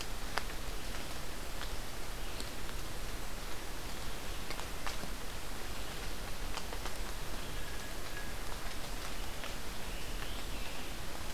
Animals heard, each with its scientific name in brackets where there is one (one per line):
Scarlet Tanager (Piranga olivacea)
Blue Jay (Cyanocitta cristata)